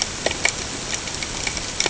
{"label": "ambient", "recorder": "HydroMoth"}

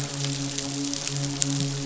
{"label": "biophony, midshipman", "recorder": "SoundTrap 500"}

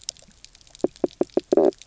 {"label": "biophony, knock croak", "recorder": "SoundTrap 300"}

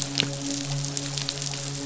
{"label": "biophony, midshipman", "recorder": "SoundTrap 500"}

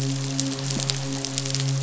{"label": "biophony, midshipman", "recorder": "SoundTrap 500"}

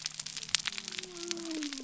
{"label": "biophony", "recorder": "SoundTrap 300"}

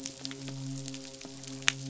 {"label": "biophony, midshipman", "recorder": "SoundTrap 500"}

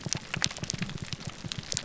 {"label": "biophony, grouper groan", "recorder": "SoundTrap 300"}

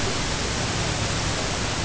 {"label": "ambient", "recorder": "HydroMoth"}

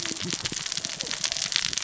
{"label": "biophony, cascading saw", "recorder": "SoundTrap 600 or HydroMoth"}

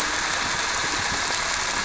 {"label": "anthrophony, boat engine", "recorder": "SoundTrap 300"}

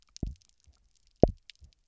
{"label": "biophony, double pulse", "recorder": "SoundTrap 300"}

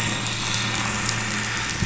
{"label": "anthrophony, boat engine", "recorder": "SoundTrap 500"}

